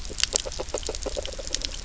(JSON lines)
{"label": "biophony, grazing", "recorder": "SoundTrap 300"}